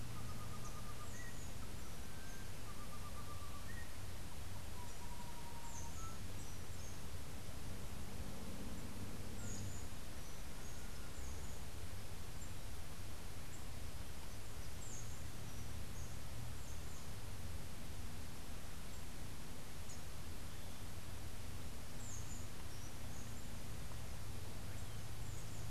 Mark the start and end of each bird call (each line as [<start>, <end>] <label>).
[0.00, 6.30] Rufous-and-white Wren (Thryophilus rufalbus)